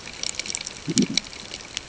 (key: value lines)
label: ambient
recorder: HydroMoth